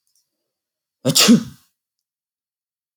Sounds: Sneeze